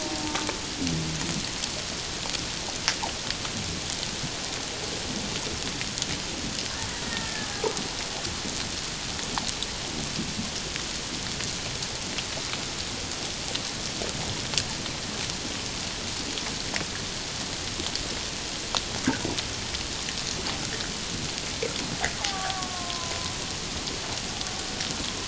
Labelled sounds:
7.0	7.5	killer whale, Bigg's (transient), 1.7 to 1.9 kHz
22.2	23.4	killer whale, Bigg's (transient), 0.78 to 1.2 kHz

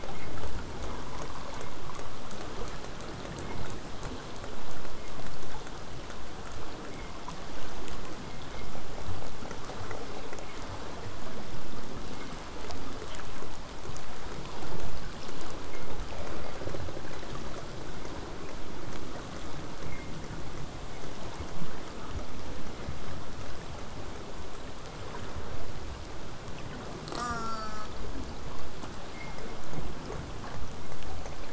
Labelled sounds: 21.5	26.5	vessel noise, 0 to 8.0 kHz
27.1	27.9	killer whale, southern resident, J pod, call S04, 0.21 to 8.0 kHz

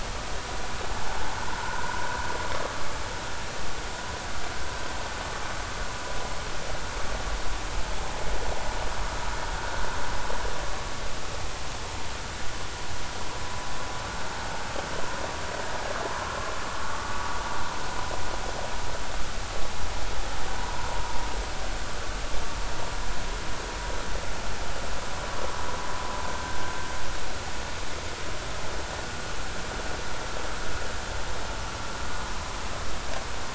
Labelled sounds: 1.6	1.9	vessel noise, 0.86 to 1.6 kHz
20.6	20.8	vessel noise, 0.90 to 1.0 kHz
26.3	26.6	vessel noise, 1.5 to 1.6 kHz

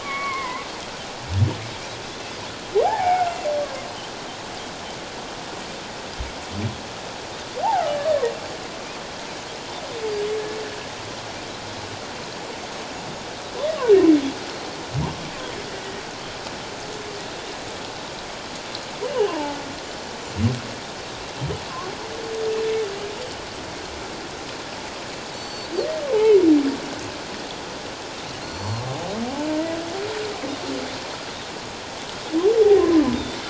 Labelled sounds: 0.0	0.7	humpback whale, 0.94 to 2.3 kHz
2.8	3.3	humpback whale, 0.78 to 2.4 kHz
19.0	19.6	humpback whale, 0.81 to 3.1 kHz
25.3	25.7	Pacific white-sided dolphin, 4.3 to 7.5 kHz
28.4	28.8	Pacific white-sided dolphin, 4.0 to 5.9 kHz
32.8	33.0	Pacific white-sided dolphin, 0.97 to 1.1 kHz

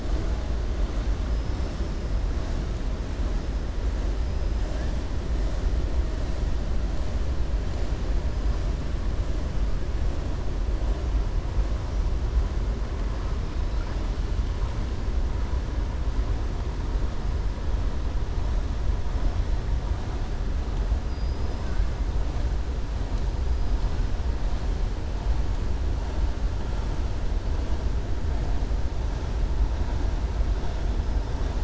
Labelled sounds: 21.0	21.6	killer whale, southern resident, 4.8 to 5.2 kHz

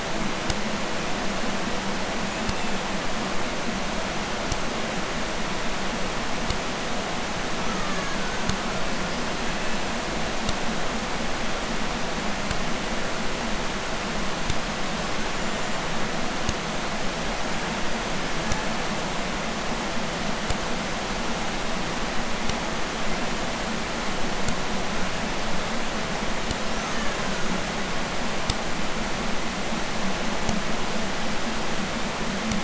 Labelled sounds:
2.2	3.0	killer whale, Bigg's (transient), 1.8 to 7.5 kHz
7.4	8.5	killer whale, Bigg's (transient), 0.81 to 6.8 kHz
8.8	10.2	killer whale, Bigg's (transient), 0.81 to 7.7 kHz
15.1	16.0	killer whale, Bigg's (transient), 1.0 to 7.6 kHz
18.2	19.4	killer whale, Bigg's (transient), 0.44 to 8.0 kHz
26.5	28.0	killer whale, Bigg's (transient), 0.47 to 7.3 kHz

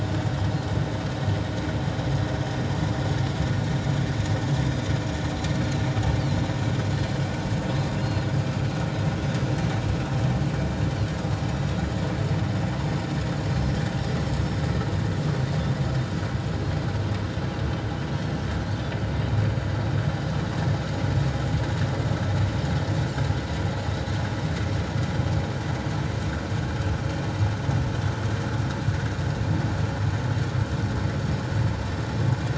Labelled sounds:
5.5	5.8	Pacific white-sided dolphin, 3.9 to 4.4 kHz
6.9	7.2	Pacific white-sided dolphin, 2.9 to 3.0 kHz
8.0	8.3	Pacific white-sided dolphin, 2.6 to 4.5 kHz

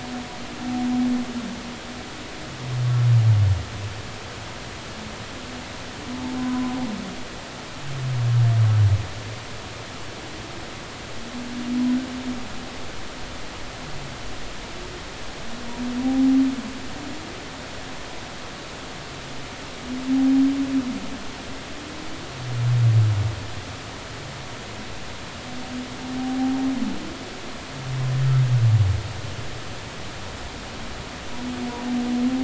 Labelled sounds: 6.4	6.8	humpback whale, 0.96 to 1.1 kHz
16.0	16.3	humpback whale, 0.80 to 0.86 kHz
26.2	26.6	humpback whale, 0.80 to 0.83 kHz

